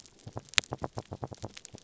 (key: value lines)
label: biophony
recorder: SoundTrap 300